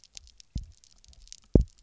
{"label": "biophony, double pulse", "recorder": "SoundTrap 300"}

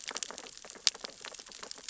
{"label": "biophony, sea urchins (Echinidae)", "recorder": "SoundTrap 600 or HydroMoth"}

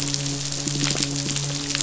{"label": "biophony, midshipman", "recorder": "SoundTrap 500"}
{"label": "biophony", "recorder": "SoundTrap 500"}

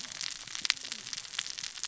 {"label": "biophony, cascading saw", "recorder": "SoundTrap 600 or HydroMoth"}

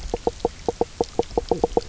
{"label": "biophony, knock croak", "recorder": "SoundTrap 300"}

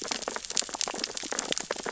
{"label": "biophony, sea urchins (Echinidae)", "recorder": "SoundTrap 600 or HydroMoth"}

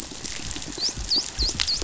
{"label": "biophony, dolphin", "recorder": "SoundTrap 500"}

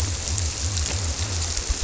{"label": "biophony", "recorder": "SoundTrap 300"}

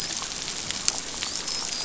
{"label": "biophony, dolphin", "recorder": "SoundTrap 500"}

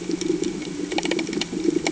{"label": "anthrophony, boat engine", "recorder": "HydroMoth"}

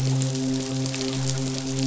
{"label": "biophony, midshipman", "recorder": "SoundTrap 500"}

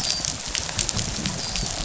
{"label": "biophony, dolphin", "recorder": "SoundTrap 500"}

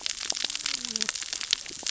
{"label": "biophony, cascading saw", "recorder": "SoundTrap 600 or HydroMoth"}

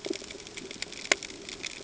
{"label": "ambient", "recorder": "HydroMoth"}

